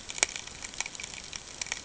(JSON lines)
{"label": "ambient", "recorder": "HydroMoth"}